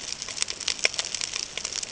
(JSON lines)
{"label": "ambient", "recorder": "HydroMoth"}